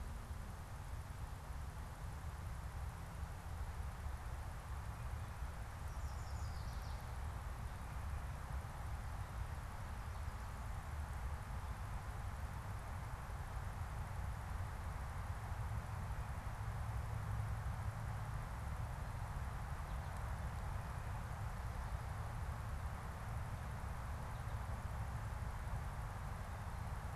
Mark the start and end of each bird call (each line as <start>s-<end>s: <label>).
5.5s-7.2s: unidentified bird